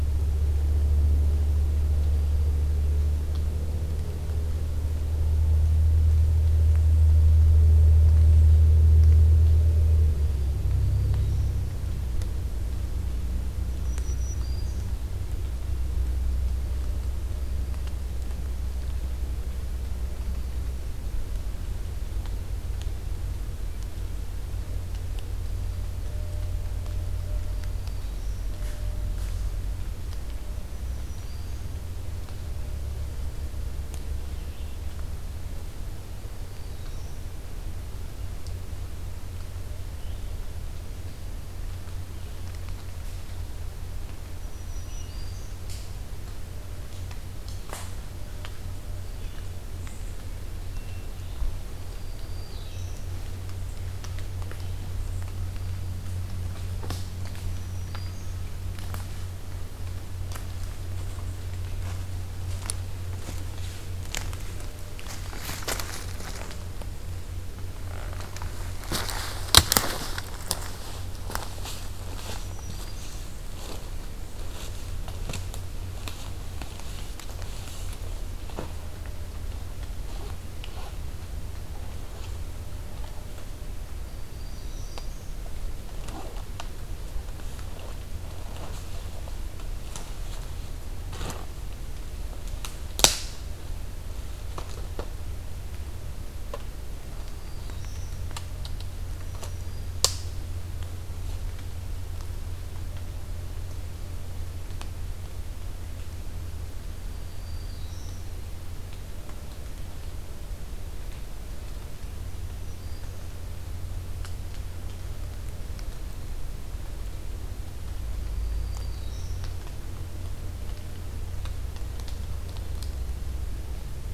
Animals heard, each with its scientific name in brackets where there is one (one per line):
Red-eyed Vireo (Vireo olivaceus)
Black-throated Green Warbler (Setophaga virens)